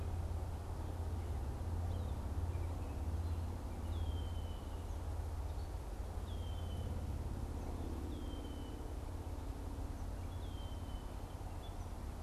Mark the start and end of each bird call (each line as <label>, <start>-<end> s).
Red-winged Blackbird (Agelaius phoeniceus), 3.6-11.2 s